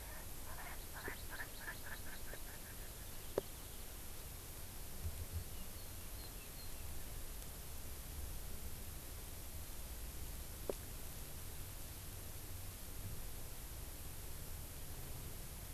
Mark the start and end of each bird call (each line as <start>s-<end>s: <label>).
0.0s-3.0s: Erckel's Francolin (Pternistis erckelii)